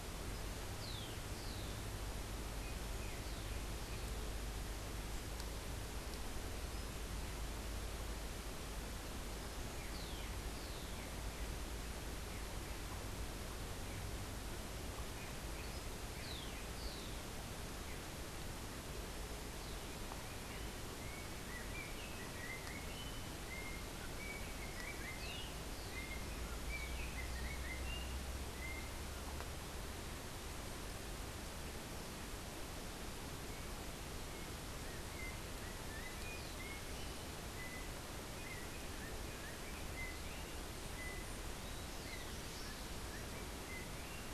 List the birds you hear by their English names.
Rufous-collared Sparrow, Yellow-backed Oriole